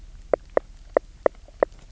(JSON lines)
{"label": "biophony, knock", "recorder": "SoundTrap 300"}